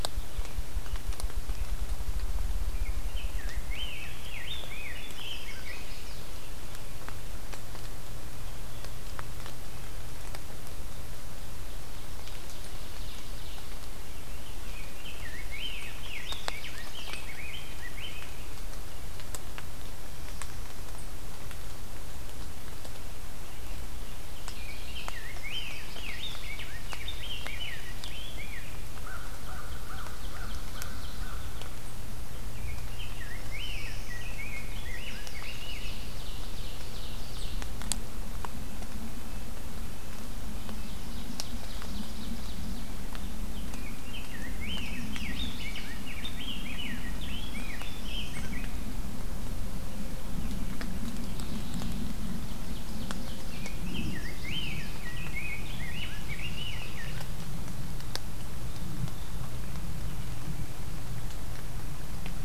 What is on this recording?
Ruffed Grouse, Rose-breasted Grosbeak, Chestnut-sided Warbler, Ovenbird, American Crow, American Goldfinch, Black-throated Blue Warbler, Red-breasted Nuthatch, Mourning Warbler, Evening Grosbeak